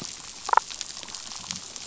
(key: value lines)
label: biophony, damselfish
recorder: SoundTrap 500